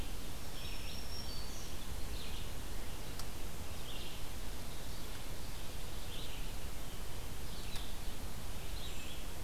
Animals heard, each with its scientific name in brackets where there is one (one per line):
Red-eyed Vireo (Vireo olivaceus)
Brown Creeper (Certhia americana)
Black-throated Green Warbler (Setophaga virens)